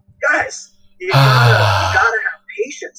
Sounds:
Sigh